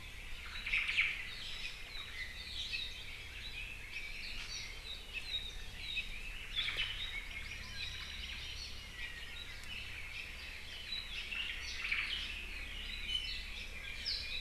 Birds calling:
Apapane (Himatione sanguinea), Omao (Myadestes obscurus), Iiwi (Drepanis coccinea), Hawaii Amakihi (Chlorodrepanis virens)

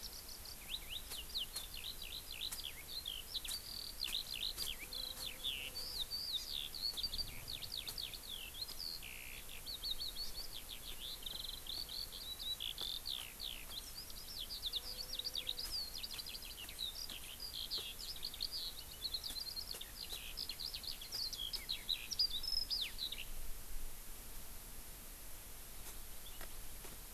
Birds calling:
Eurasian Skylark (Alauda arvensis), Japanese Bush Warbler (Horornis diphone)

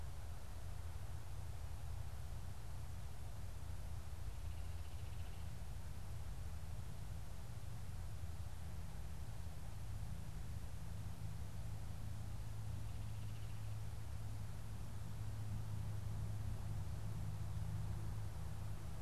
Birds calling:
Baltimore Oriole (Icterus galbula)

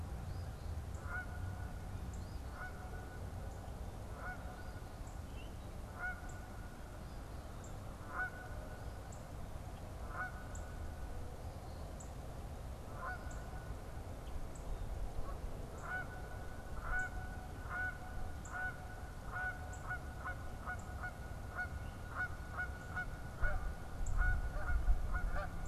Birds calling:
Northern Cardinal (Cardinalis cardinalis), Eastern Phoebe (Sayornis phoebe), Song Sparrow (Melospiza melodia), Canada Goose (Branta canadensis)

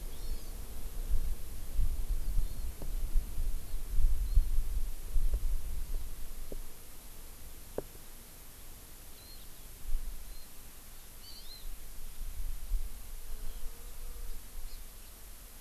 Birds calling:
Warbling White-eye (Zosterops japonicus), Hawaii Amakihi (Chlorodrepanis virens)

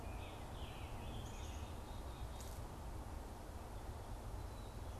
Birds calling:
Scarlet Tanager (Piranga olivacea), Black-capped Chickadee (Poecile atricapillus)

